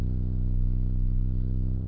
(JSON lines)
{"label": "anthrophony, boat engine", "recorder": "SoundTrap 300"}